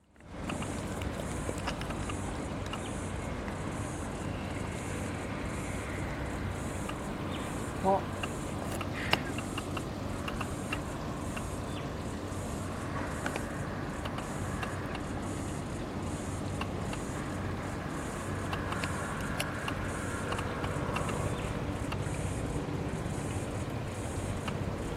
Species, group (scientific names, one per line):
Atrapsalta corticina
Cicadidae